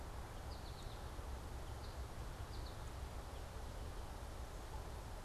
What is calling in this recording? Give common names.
American Goldfinch